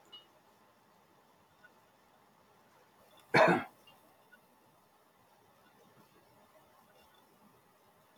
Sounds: Cough